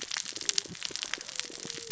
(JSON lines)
{"label": "biophony, cascading saw", "recorder": "SoundTrap 600 or HydroMoth"}